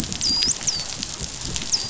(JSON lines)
{"label": "biophony, dolphin", "recorder": "SoundTrap 500"}